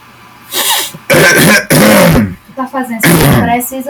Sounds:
Throat clearing